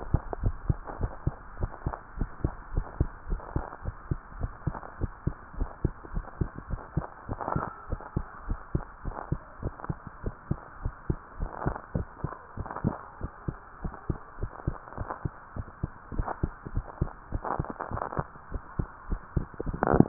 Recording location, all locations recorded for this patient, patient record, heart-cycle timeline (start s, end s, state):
tricuspid valve (TV)
aortic valve (AV)+pulmonary valve (PV)+tricuspid valve (TV)+mitral valve (MV)
#Age: Child
#Sex: Female
#Height: 135.0 cm
#Weight: 29.2 kg
#Pregnancy status: False
#Murmur: Absent
#Murmur locations: nan
#Most audible location: nan
#Systolic murmur timing: nan
#Systolic murmur shape: nan
#Systolic murmur grading: nan
#Systolic murmur pitch: nan
#Systolic murmur quality: nan
#Diastolic murmur timing: nan
#Diastolic murmur shape: nan
#Diastolic murmur grading: nan
#Diastolic murmur pitch: nan
#Diastolic murmur quality: nan
#Outcome: Abnormal
#Campaign: 2015 screening campaign
0.00	0.08	systole
0.08	0.22	S2
0.22	0.40	diastole
0.40	0.58	S1
0.58	0.68	systole
0.68	0.82	S2
0.82	0.98	diastole
0.98	1.12	S1
1.12	1.24	systole
1.24	1.36	S2
1.36	1.56	diastole
1.56	1.70	S1
1.70	1.84	systole
1.84	1.96	S2
1.96	2.16	diastole
2.16	2.30	S1
2.30	2.42	systole
2.42	2.52	S2
2.52	2.70	diastole
2.70	2.86	S1
2.86	2.96	systole
2.96	3.12	S2
3.12	3.28	diastole
3.28	3.42	S1
3.42	3.52	systole
3.52	3.66	S2
3.66	3.84	diastole
3.84	3.96	S1
3.96	4.08	systole
4.08	4.20	S2
4.20	4.38	diastole
4.38	4.52	S1
4.52	4.66	systole
4.66	4.76	S2
4.76	4.98	diastole
4.98	5.12	S1
5.12	5.22	systole
5.22	5.34	S2
5.34	5.54	diastole
5.54	5.68	S1
5.68	5.80	systole
5.80	5.94	S2
5.94	6.12	diastole
6.12	6.26	S1
6.26	6.38	systole
6.38	6.50	S2
6.50	6.68	diastole
6.68	6.80	S1
6.80	6.94	systole
6.94	7.06	S2
7.06	7.28	diastole
7.28	7.40	S1
7.40	7.54	systole
7.54	7.66	S2
7.66	7.88	diastole
7.88	8.00	S1
8.00	8.12	systole
8.12	8.26	S2
8.26	8.44	diastole
8.44	8.58	S1
8.58	8.70	systole
8.70	8.86	S2
8.86	9.06	diastole
9.06	9.16	S1
9.16	9.28	systole
9.28	9.40	S2
9.40	9.62	diastole
9.62	9.74	S1
9.74	9.88	systole
9.88	10.00	S2
10.00	10.22	diastole
10.22	10.34	S1
10.34	10.50	systole
10.50	10.60	S2
10.60	10.82	diastole
10.82	10.94	S1
10.94	11.08	systole
11.08	11.20	S2
11.20	11.38	diastole
11.38	11.50	S1
11.50	11.64	systole
11.64	11.78	S2
11.78	11.96	diastole
11.96	12.08	S1
12.08	12.22	systole
12.22	12.34	S2
12.34	12.58	diastole
12.58	12.68	S1
12.68	12.82	systole
12.82	12.96	S2
12.96	13.20	diastole
13.20	13.30	S1
13.30	13.44	systole
13.44	13.58	S2
13.58	13.82	diastole
13.82	13.92	S1
13.92	14.08	systole
14.08	14.20	S2
14.20	14.40	diastole
14.40	14.50	S1
14.50	14.66	systole
14.66	14.76	S2
14.76	14.98	diastole
14.98	15.08	S1
15.08	15.24	systole
15.24	15.34	S2
15.34	15.56	diastole
15.56	15.66	S1
15.66	15.82	systole
15.82	15.90	S2
15.90	16.12	diastole
16.12	16.28	S1
16.28	16.44	systole
16.44	16.54	S2
16.54	16.74	diastole
16.74	16.86	S1
16.86	17.00	systole
17.00	17.12	S2
17.12	17.19	diastole